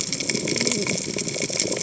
{"label": "biophony, cascading saw", "recorder": "HydroMoth"}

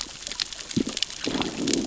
{"label": "biophony, growl", "recorder": "SoundTrap 600 or HydroMoth"}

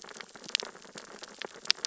{"label": "biophony, sea urchins (Echinidae)", "recorder": "SoundTrap 600 or HydroMoth"}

